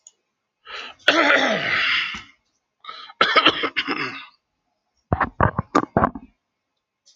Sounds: Cough